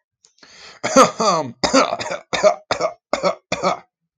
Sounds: Cough